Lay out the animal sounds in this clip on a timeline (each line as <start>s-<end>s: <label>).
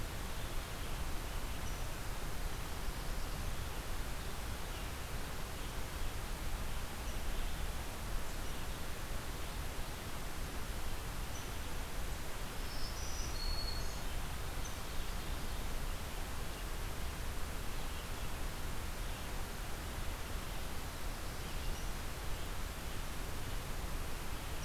12.5s-14.2s: Black-throated Green Warbler (Setophaga virens)